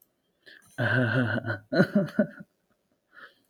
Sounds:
Laughter